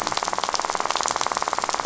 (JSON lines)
{"label": "biophony, rattle", "recorder": "SoundTrap 500"}